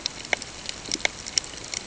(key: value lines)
label: ambient
recorder: HydroMoth